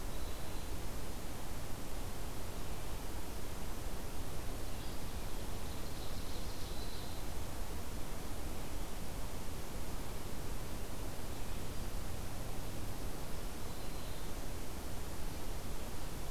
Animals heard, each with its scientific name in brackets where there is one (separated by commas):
Black-throated Green Warbler (Setophaga virens), Ovenbird (Seiurus aurocapilla)